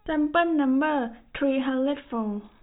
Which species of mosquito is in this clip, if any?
no mosquito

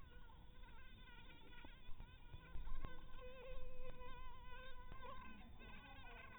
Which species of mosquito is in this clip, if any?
Anopheles maculatus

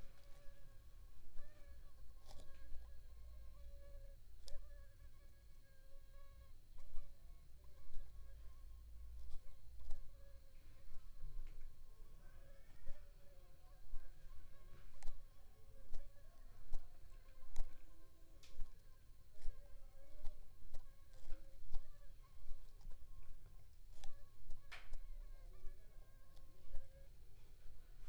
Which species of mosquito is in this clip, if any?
Aedes aegypti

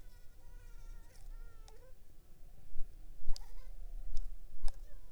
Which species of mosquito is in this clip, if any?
Anopheles funestus s.s.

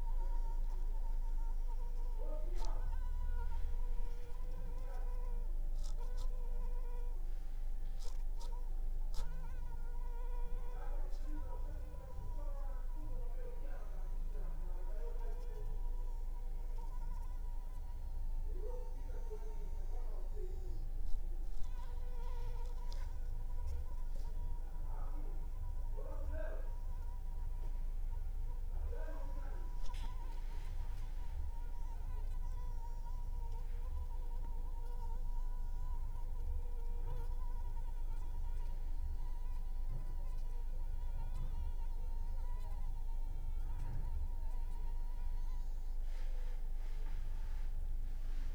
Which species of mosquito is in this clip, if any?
Anopheles arabiensis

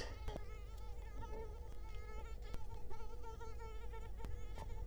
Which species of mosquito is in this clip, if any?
Culex quinquefasciatus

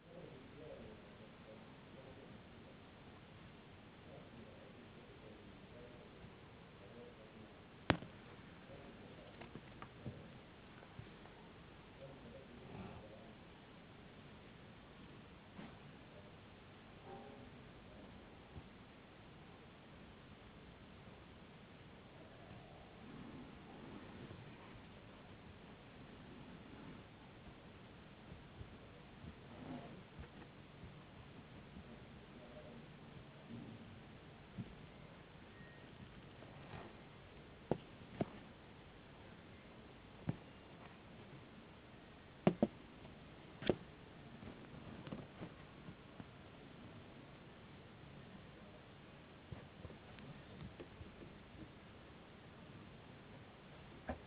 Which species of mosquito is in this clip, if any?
no mosquito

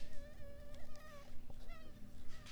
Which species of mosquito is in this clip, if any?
Culex pipiens complex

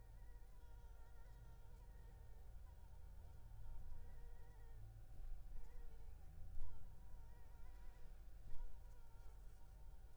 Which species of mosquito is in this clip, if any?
Anopheles gambiae s.l.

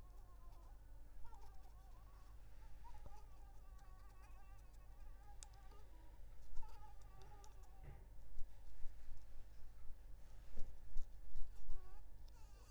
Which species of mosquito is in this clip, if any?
Anopheles arabiensis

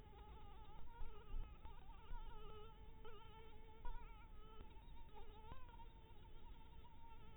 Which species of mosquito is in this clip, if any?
Anopheles maculatus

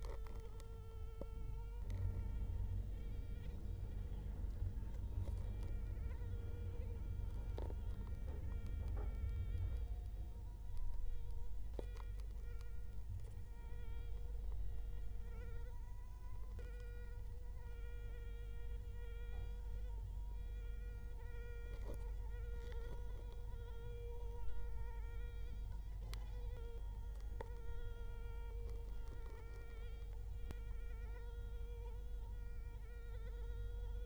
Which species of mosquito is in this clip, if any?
Culex quinquefasciatus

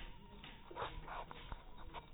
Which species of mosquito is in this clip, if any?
mosquito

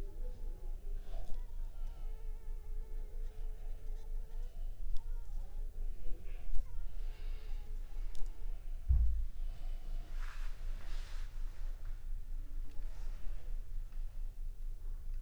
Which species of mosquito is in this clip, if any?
Anopheles funestus s.s.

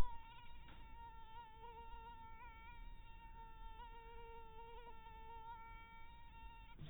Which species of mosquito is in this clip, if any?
mosquito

